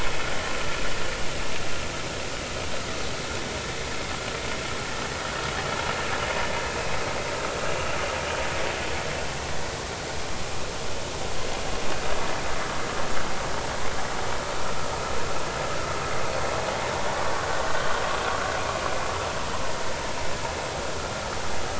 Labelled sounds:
7.6	7.9	vessel noise, 2.7 to 2.9 kHz

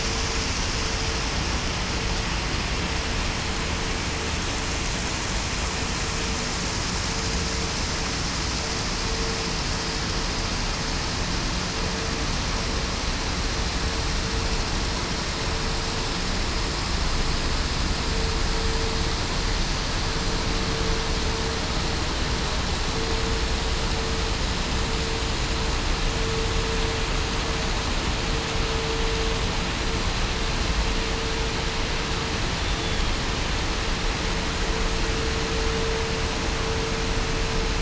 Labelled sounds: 32.6	33.0	killer whale, southern resident, 3.4 to 3.5 kHz

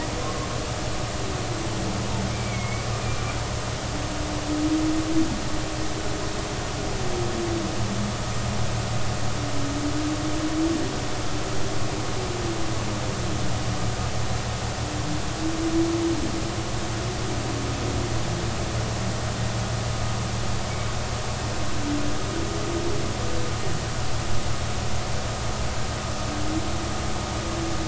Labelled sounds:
2.3	2.9	humpback whale, 2.1 to 2.4 kHz

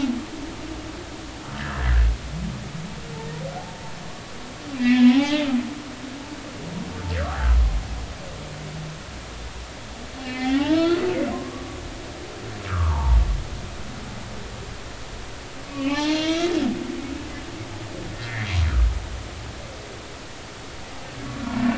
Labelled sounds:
1.6	1.9	humpback whale, 1.5 to 1.9 kHz
4.7	5.5	humpback whale, 0.80 to 4.2 kHz
10.2	11.7	humpback whale, 0.80 to 4.5 kHz
12.7	13.2	humpback whale, 0.80 to 1.7 kHz
15.6	16.6	humpback whale, 0.80 to 4.4 kHz
18.1	18.5	humpback whale, 1.6 to 2.2 kHz

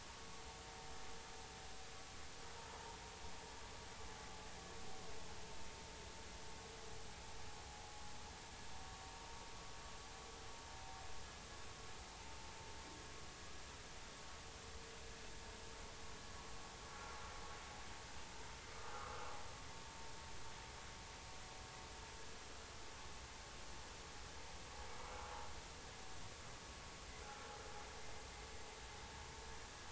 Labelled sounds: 16.9	17.1	vessel noise, 1.3 to 1.4 kHz
27.2	27.5	vessel noise, 1.3 to 1.4 kHz

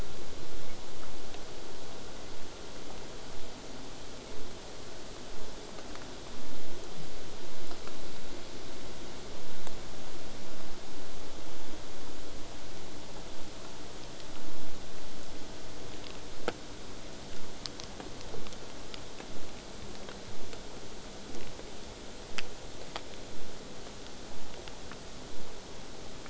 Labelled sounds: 21.3	26.2	vessel noise, 0 to 8.0 kHz

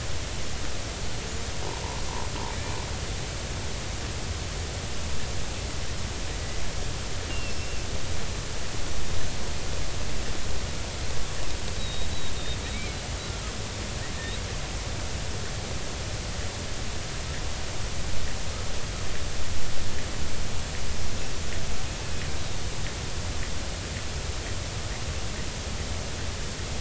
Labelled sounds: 7.3	7.8	killer whale, Bigg's (transient), 2.6 to 2.9 kHz
11.8	12.1	killer whale, Bigg's (transient), 3.7 to 4.0 kHz

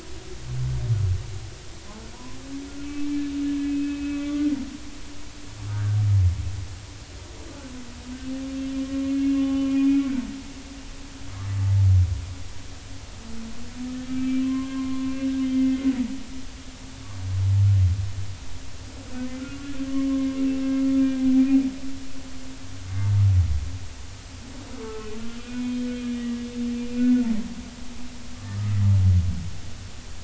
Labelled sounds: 2.1	3.1	humpback whale, 0.90 to 2.7 kHz
3.6	4.2	humpback whale, 2.5 to 2.7 kHz
5.7	6.0	humpback whale, 1.4 to 1.7 kHz
8.8	9.7	humpback whale, 0.80 to 3.0 kHz
14.1	15.1	humpback whale, 0.99 to 2.4 kHz
19.9	20.3	humpback whale, 1.0 to 1.2 kHz
21.3	21.6	humpback whale, 2.3 to 2.5 kHz
25.4	25.8	humpback whale, 2.4 to 2.5 kHz
26.1	27.3	humpback whale, 1.3 to 2.9 kHz

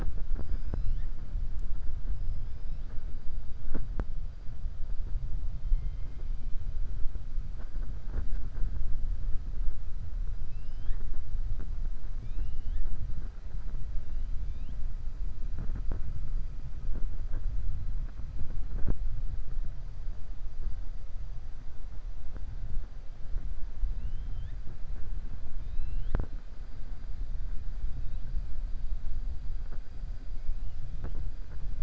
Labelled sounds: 2.1	2.8	killer whale, 4.9 to 5.4 kHz
10.3	11.1	killer whale, 1.1 to 5.2 kHz
12.1	12.9	killer whale, 1.5 to 4.4 kHz
23.9	24.6	killer whale, 1.7 to 3.8 kHz

